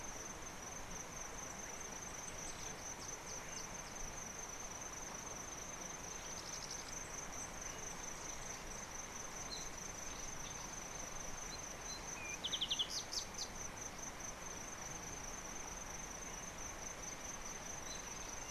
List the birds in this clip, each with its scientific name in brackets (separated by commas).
Cardinal Woodpecker (Chloropicus fuscescens), Yellow Bishop (Euplectes capensis)